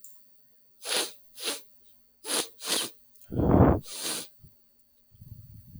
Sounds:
Sniff